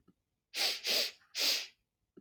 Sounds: Sniff